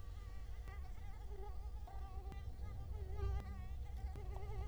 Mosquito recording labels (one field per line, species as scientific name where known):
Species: Culex quinquefasciatus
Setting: cup